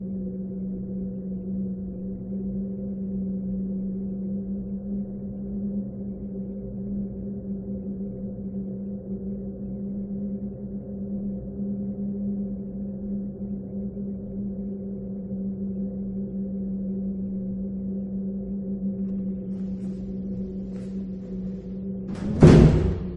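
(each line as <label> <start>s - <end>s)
Strong wind blowing outside and someone closing a door. 17.5s - 23.2s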